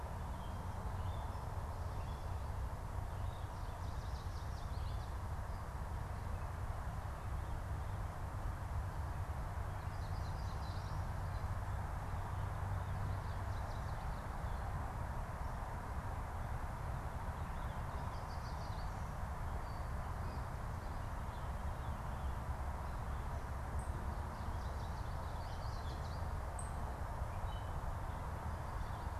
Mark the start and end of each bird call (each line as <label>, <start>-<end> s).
unidentified bird, 3.7-5.2 s
Yellow Warbler (Setophaga petechia), 9.6-11.1 s
Yellow Warbler (Setophaga petechia), 17.9-19.0 s
Ovenbird (Seiurus aurocapilla), 23.6-26.8 s
Yellow Warbler (Setophaga petechia), 24.2-26.3 s